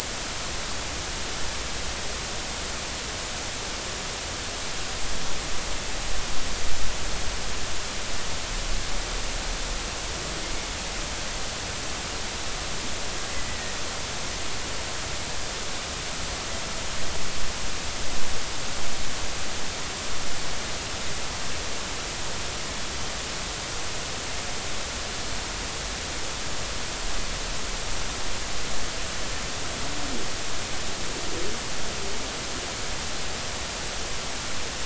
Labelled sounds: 13.3	13.7	humpback whale, 1.8 to 2.0 kHz

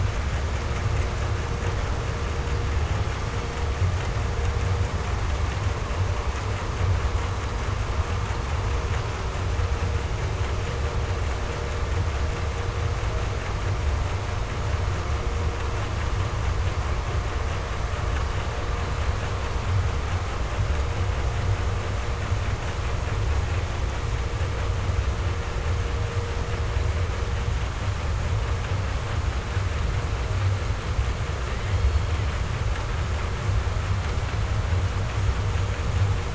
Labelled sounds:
2.7	3.9	killer whale, 1.3 to 7.0 kHz
31.3	32.5	killer whale, 1.0 to 4.7 kHz

